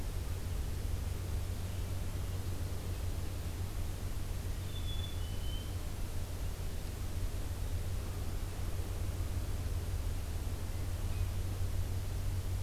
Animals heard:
Black-capped Chickadee (Poecile atricapillus)

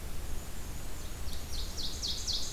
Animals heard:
Ovenbird (Seiurus aurocapilla)
Black-and-white Warbler (Mniotilta varia)

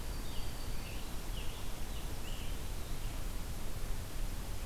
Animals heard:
Scarlet Tanager (Piranga olivacea)
Black-throated Green Warbler (Setophaga virens)

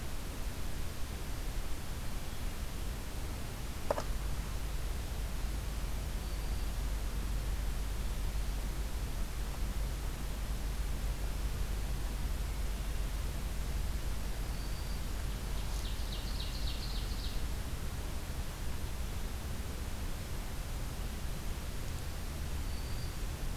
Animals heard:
Black-throated Green Warbler (Setophaga virens)
Ovenbird (Seiurus aurocapilla)

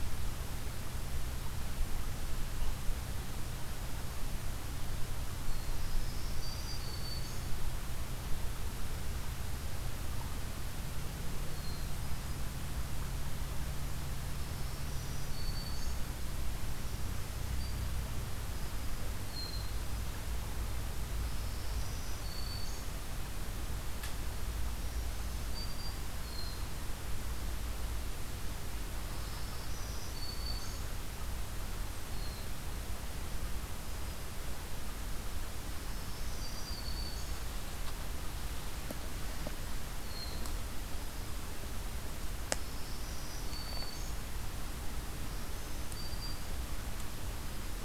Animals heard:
Black-throated Green Warbler (Setophaga virens)
Hermit Thrush (Catharus guttatus)

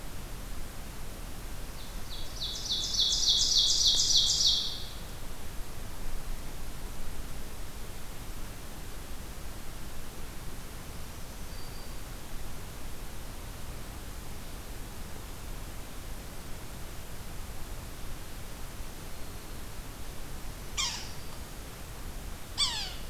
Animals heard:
Yellow-bellied Sapsucker (Sphyrapicus varius)
Ovenbird (Seiurus aurocapilla)

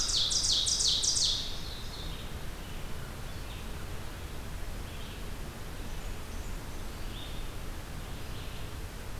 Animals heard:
Red-eyed Vireo (Vireo olivaceus)
Blackburnian Warbler (Setophaga fusca)
Ovenbird (Seiurus aurocapilla)

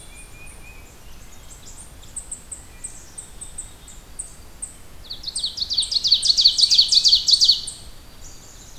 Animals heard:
Black-throated Green Warbler (Setophaga virens)
Tufted Titmouse (Baeolophus bicolor)
Black-capped Chickadee (Poecile atricapillus)
Wood Thrush (Hylocichla mustelina)
Ovenbird (Seiurus aurocapilla)
unknown mammal

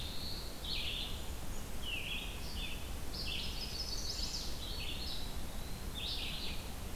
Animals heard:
Red-eyed Vireo (Vireo olivaceus)
Chimney Swift (Chaetura pelagica)
Eastern Wood-Pewee (Contopus virens)
Black-throated Blue Warbler (Setophaga caerulescens)

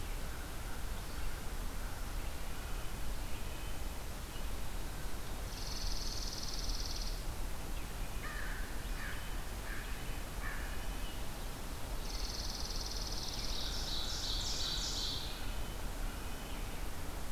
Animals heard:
Red-breasted Nuthatch (Sitta canadensis)
American Crow (Corvus brachyrhynchos)
Ovenbird (Seiurus aurocapilla)
Chipping Sparrow (Spizella passerina)

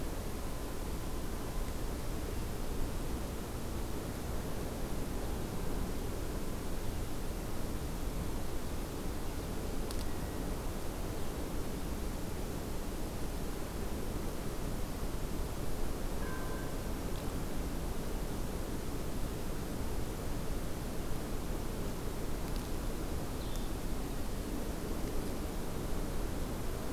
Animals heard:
Blue-headed Vireo (Vireo solitarius)

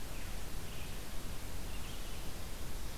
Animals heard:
Red-eyed Vireo (Vireo olivaceus)

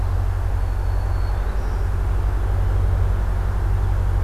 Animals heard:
Black-throated Green Warbler (Setophaga virens)

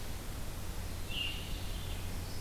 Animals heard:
Veery (Catharus fuscescens)

